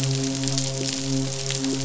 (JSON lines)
{"label": "biophony, midshipman", "recorder": "SoundTrap 500"}